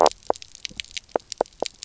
{"label": "biophony, knock croak", "recorder": "SoundTrap 300"}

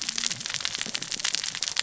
{"label": "biophony, cascading saw", "recorder": "SoundTrap 600 or HydroMoth"}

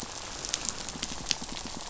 {"label": "biophony, rattle", "recorder": "SoundTrap 500"}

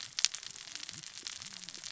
{"label": "biophony, cascading saw", "recorder": "SoundTrap 600 or HydroMoth"}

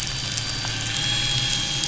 {"label": "anthrophony, boat engine", "recorder": "SoundTrap 500"}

